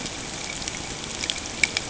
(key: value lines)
label: ambient
recorder: HydroMoth